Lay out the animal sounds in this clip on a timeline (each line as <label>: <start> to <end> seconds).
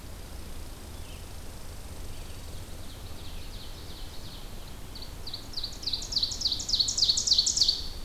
Red Squirrel (Tamiasciurus hudsonicus): 0.0 to 3.0 seconds
Ovenbird (Seiurus aurocapilla): 2.3 to 8.0 seconds